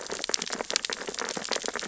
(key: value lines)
label: biophony, sea urchins (Echinidae)
recorder: SoundTrap 600 or HydroMoth